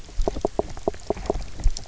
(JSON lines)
{"label": "biophony, knock", "recorder": "SoundTrap 300"}